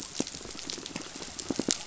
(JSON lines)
{"label": "biophony, pulse", "recorder": "SoundTrap 500"}